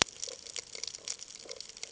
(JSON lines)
{"label": "ambient", "recorder": "HydroMoth"}